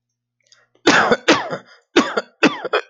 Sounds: Cough